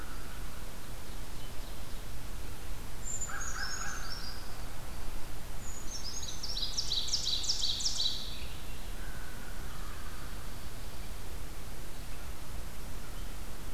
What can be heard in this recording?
American Crow, Ovenbird, Brown Creeper, Dark-eyed Junco